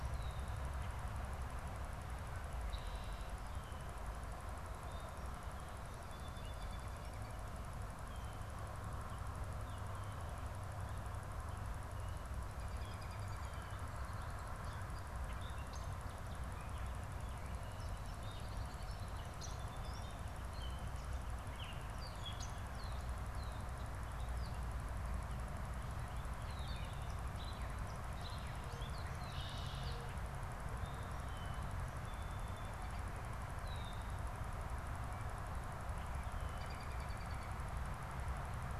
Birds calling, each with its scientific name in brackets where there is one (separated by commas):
American Robin (Turdus migratorius), Gray Catbird (Dumetella carolinensis), Red-winged Blackbird (Agelaius phoeniceus)